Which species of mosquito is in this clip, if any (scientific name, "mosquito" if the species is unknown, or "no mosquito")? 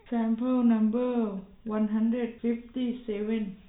no mosquito